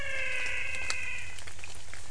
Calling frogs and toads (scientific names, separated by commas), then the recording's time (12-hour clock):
Physalaemus albonotatus
5:45pm